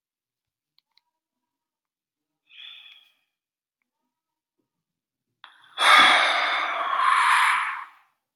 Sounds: Sigh